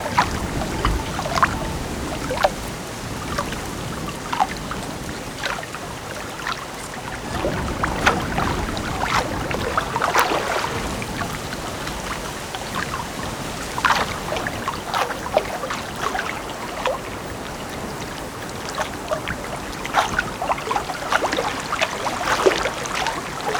Is someone swimming?
yes